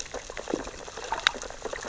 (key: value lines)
label: biophony, sea urchins (Echinidae)
recorder: SoundTrap 600 or HydroMoth